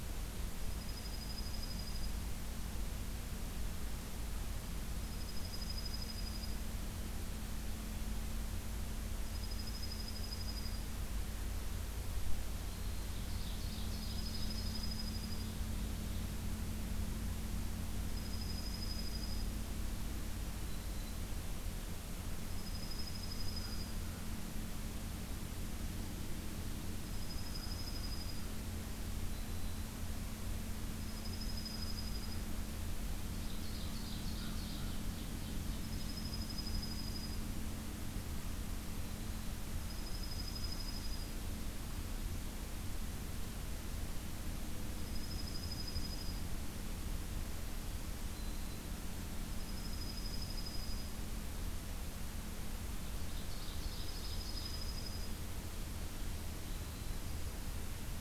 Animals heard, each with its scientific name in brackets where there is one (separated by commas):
Dark-eyed Junco (Junco hyemalis), Black-throated Green Warbler (Setophaga virens), Ovenbird (Seiurus aurocapilla), American Crow (Corvus brachyrhynchos)